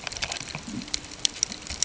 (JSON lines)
{"label": "ambient", "recorder": "HydroMoth"}